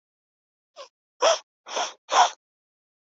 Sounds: Sniff